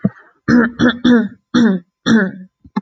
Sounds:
Throat clearing